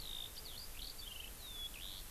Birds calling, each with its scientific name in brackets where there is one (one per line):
Eurasian Skylark (Alauda arvensis)